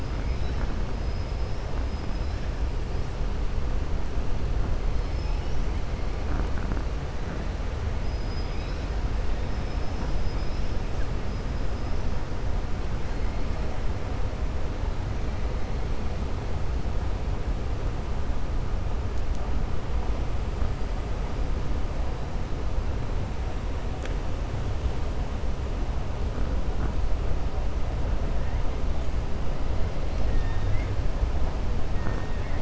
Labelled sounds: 8.0	8.9	killer whale, 2.3 to 6.1 kHz
9.3	10.1	killer whale, 4.8 to 5.9 kHz
31.9	32.6	killer whale, 0.91 to 2.8 kHz

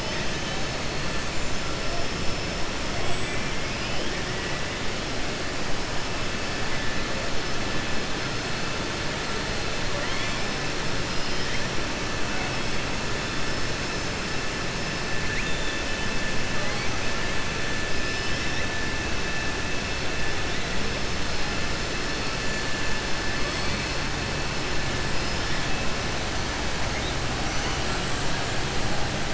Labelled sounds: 15.2	15.8	killer whale, southern resident, 1.6 to 3.7 kHz
17.9	18.6	killer whale, southern resident, 4.5 to 5.6 kHz
25.1	25.6	killer whale, southern resident, 4.3 to 5.7 kHz

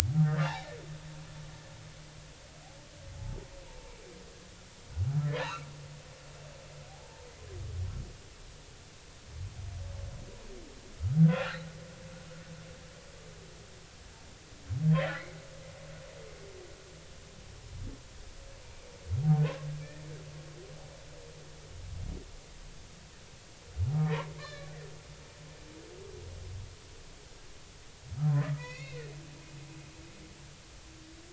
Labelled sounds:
0.1	0.8	humpback whale, 1.2 to 4.0 kHz
5.1	5.7	humpback whale, 0.83 to 4.2 kHz
6.9	7.2	humpback whale, 0.80 to 0.99 kHz
11.2	11.6	humpback whale, 1.3 to 1.7 kHz
15.0	15.2	humpback whale, 1.6 to 2.1 kHz
24.0	24.7	humpback whale, 0.86 to 4.2 kHz
28.6	29.1	humpback whale, 1.8 to 5.8 kHz

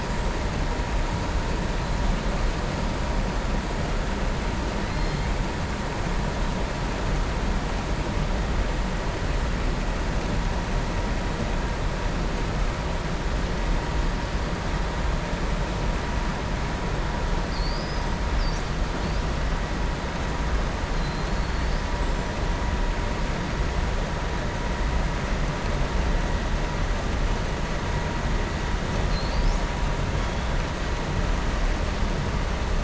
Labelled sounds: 29.0	29.6	killer whale, southern resident, 4.0 to 7.9 kHz

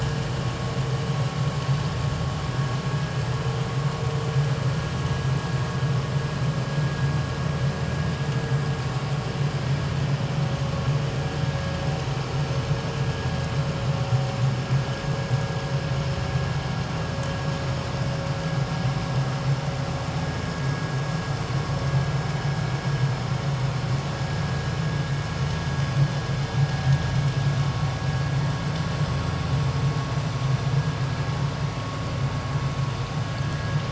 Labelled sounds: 33.4	33.8	vessel noise, 1.6 to 1.8 kHz

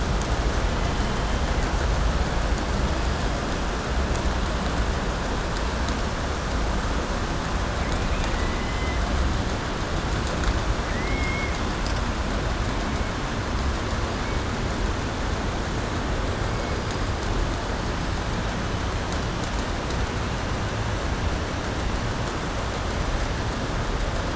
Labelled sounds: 8.0	9.0	killer whale, southern resident, 1.8 to 3.7 kHz
10.8	11.6	killer whale, southern resident, 1.8 to 3.2 kHz

